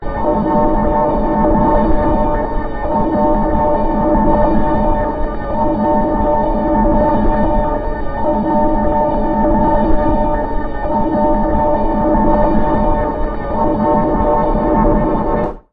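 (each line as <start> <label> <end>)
0.0 Repeated metallic, muffled siren sounds. 15.7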